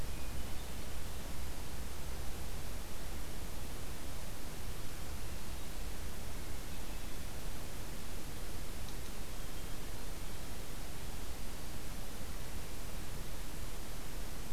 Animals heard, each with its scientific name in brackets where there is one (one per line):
Hermit Thrush (Catharus guttatus)